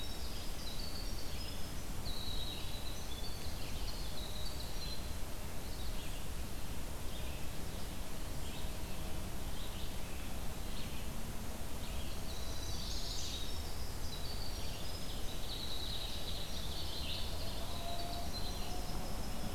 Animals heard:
Red-eyed Vireo (Vireo olivaceus), Winter Wren (Troglodytes hiemalis), Eastern Wood-Pewee (Contopus virens), Chestnut-sided Warbler (Setophaga pensylvanica)

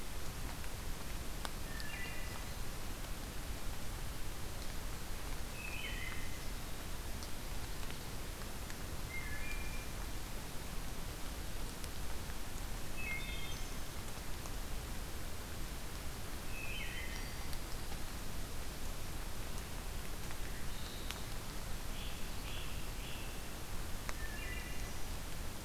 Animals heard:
Wood Thrush (Hylocichla mustelina), Great Crested Flycatcher (Myiarchus crinitus)

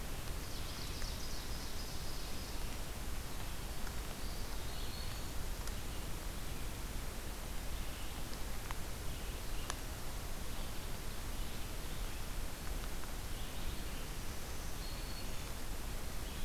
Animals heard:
Eastern Wood-Pewee (Contopus virens), Ovenbird (Seiurus aurocapilla), Red-eyed Vireo (Vireo olivaceus), Black-throated Green Warbler (Setophaga virens)

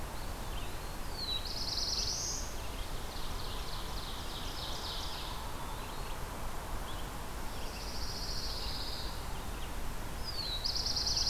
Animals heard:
Eastern Wood-Pewee (Contopus virens), Black-throated Blue Warbler (Setophaga caerulescens), Pine Warbler (Setophaga pinus), Ovenbird (Seiurus aurocapilla), Red-eyed Vireo (Vireo olivaceus)

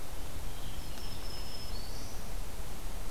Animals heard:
Black-throated Green Warbler (Setophaga virens), American Robin (Turdus migratorius)

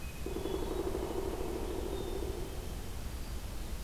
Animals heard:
Pileated Woodpecker (Dryocopus pileatus), Hermit Thrush (Catharus guttatus), Black-capped Chickadee (Poecile atricapillus)

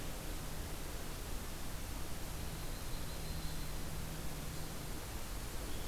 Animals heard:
Yellow-rumped Warbler (Setophaga coronata)

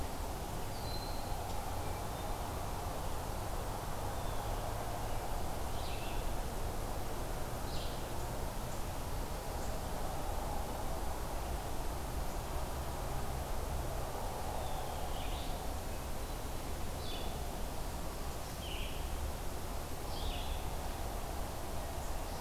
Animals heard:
Red-eyed Vireo (Vireo olivaceus), Blue Jay (Cyanocitta cristata), Broad-winged Hawk (Buteo platypterus)

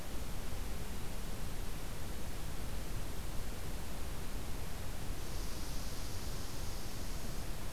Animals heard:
Red Squirrel (Tamiasciurus hudsonicus)

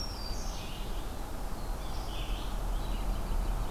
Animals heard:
Red-eyed Vireo (Vireo olivaceus), American Robin (Turdus migratorius), Black-throated Blue Warbler (Setophaga caerulescens), Black-throated Green Warbler (Setophaga virens)

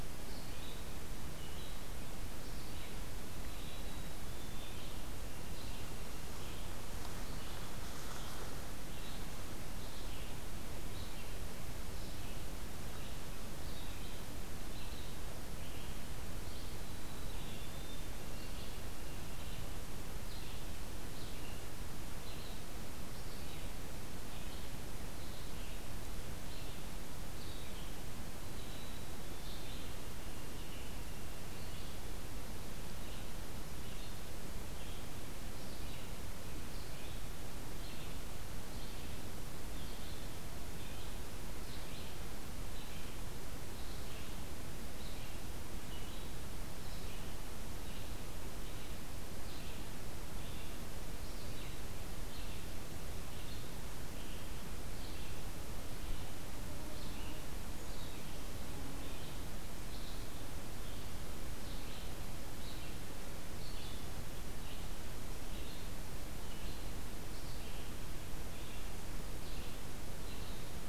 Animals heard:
White-throated Sparrow (Zonotrichia albicollis), Red-eyed Vireo (Vireo olivaceus)

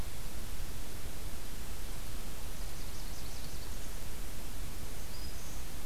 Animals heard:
Black-throated Green Warbler (Setophaga virens), Nashville Warbler (Leiothlypis ruficapilla)

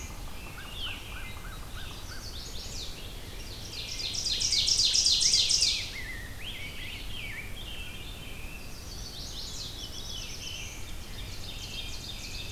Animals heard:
Ovenbird (Seiurus aurocapilla), Black-throated Blue Warbler (Setophaga caerulescens), American Crow (Corvus brachyrhynchos), Veery (Catharus fuscescens), American Robin (Turdus migratorius), Rose-breasted Grosbeak (Pheucticus ludovicianus), Red-eyed Vireo (Vireo olivaceus), Chestnut-sided Warbler (Setophaga pensylvanica)

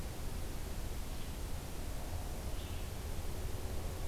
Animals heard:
Red-eyed Vireo (Vireo olivaceus)

